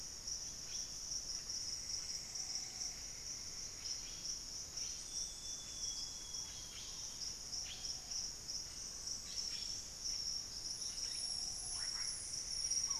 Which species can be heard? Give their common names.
Blue-headed Parrot, Plumbeous Antbird, Amazonian Grosbeak, unidentified bird, Russet-backed Oropendola